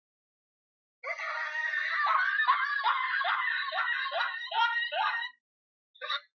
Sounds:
Laughter